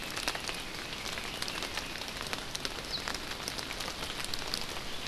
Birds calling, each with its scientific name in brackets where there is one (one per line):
Red-billed Leiothrix (Leiothrix lutea)